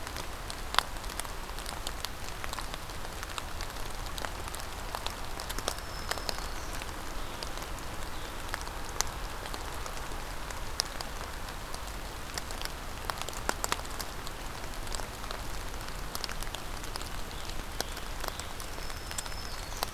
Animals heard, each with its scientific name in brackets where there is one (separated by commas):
Scarlet Tanager (Piranga olivacea), Black-throated Green Warbler (Setophaga virens)